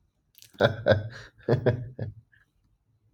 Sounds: Laughter